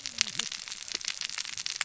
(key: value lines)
label: biophony, cascading saw
recorder: SoundTrap 600 or HydroMoth